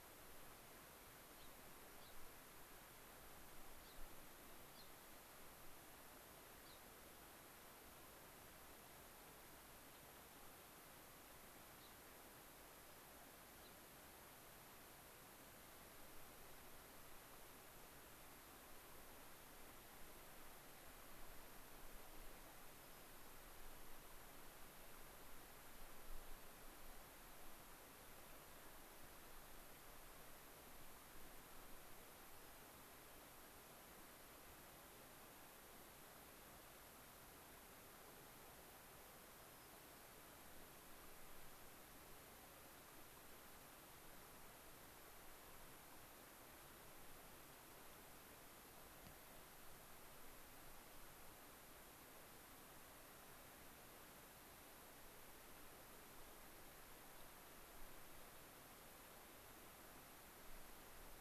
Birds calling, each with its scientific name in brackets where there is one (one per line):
White-crowned Sparrow (Zonotrichia leucophrys)
Gray-crowned Rosy-Finch (Leucosticte tephrocotis)